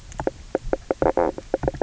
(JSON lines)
{"label": "biophony, knock croak", "recorder": "SoundTrap 300"}